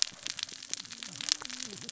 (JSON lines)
{"label": "biophony, cascading saw", "recorder": "SoundTrap 600 or HydroMoth"}